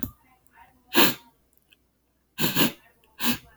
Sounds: Sniff